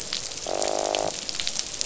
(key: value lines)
label: biophony, croak
recorder: SoundTrap 500